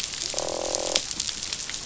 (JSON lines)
{"label": "biophony, croak", "recorder": "SoundTrap 500"}